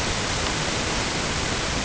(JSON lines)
{"label": "ambient", "recorder": "HydroMoth"}